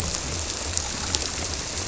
{"label": "biophony", "recorder": "SoundTrap 300"}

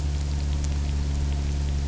{"label": "anthrophony, boat engine", "recorder": "SoundTrap 300"}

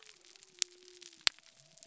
{"label": "biophony", "recorder": "SoundTrap 300"}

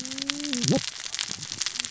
{"label": "biophony, cascading saw", "recorder": "SoundTrap 600 or HydroMoth"}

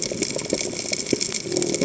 {"label": "biophony", "recorder": "HydroMoth"}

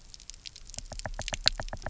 {"label": "biophony, knock", "recorder": "SoundTrap 300"}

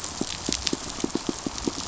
{"label": "biophony, pulse", "recorder": "SoundTrap 500"}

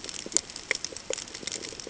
{"label": "ambient", "recorder": "HydroMoth"}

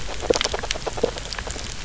{"label": "biophony, grazing", "recorder": "SoundTrap 300"}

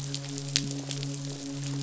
{"label": "biophony, midshipman", "recorder": "SoundTrap 500"}
{"label": "biophony", "recorder": "SoundTrap 500"}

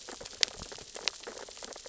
{"label": "biophony, sea urchins (Echinidae)", "recorder": "SoundTrap 600 or HydroMoth"}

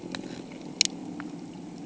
{"label": "anthrophony, boat engine", "recorder": "HydroMoth"}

